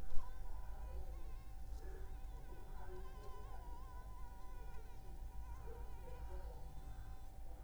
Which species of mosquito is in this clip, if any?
Anopheles funestus s.l.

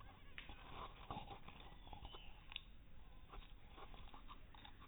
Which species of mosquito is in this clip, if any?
mosquito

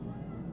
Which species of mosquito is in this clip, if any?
Aedes albopictus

